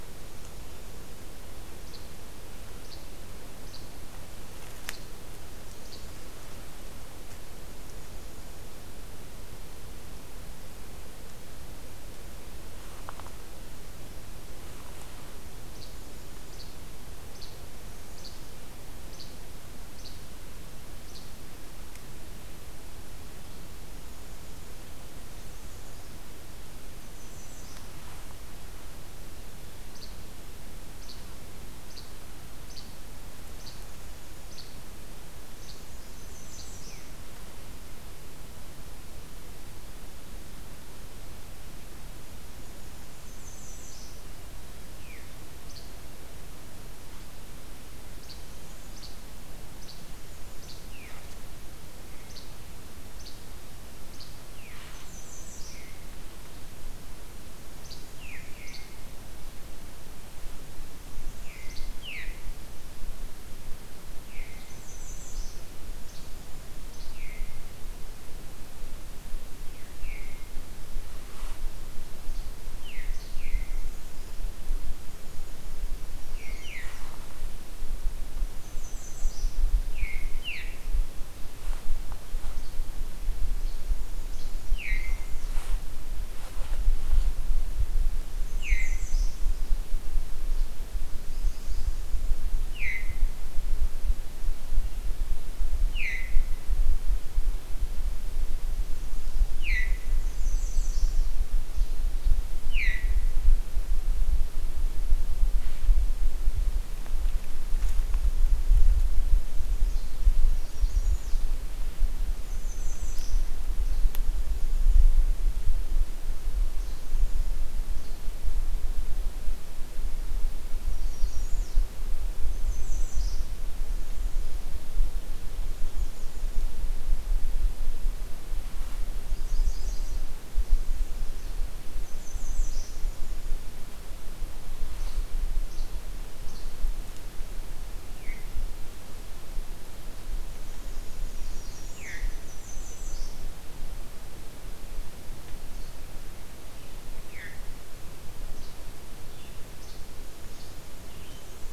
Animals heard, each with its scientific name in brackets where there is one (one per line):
Least Flycatcher (Empidonax minimus)
American Redstart (Setophaga ruticilla)
Veery (Catharus fuscescens)